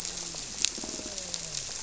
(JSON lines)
{"label": "biophony, grouper", "recorder": "SoundTrap 300"}